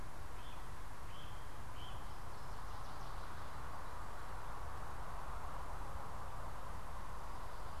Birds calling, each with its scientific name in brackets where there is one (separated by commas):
Northern Waterthrush (Parkesia noveboracensis), Great Crested Flycatcher (Myiarchus crinitus)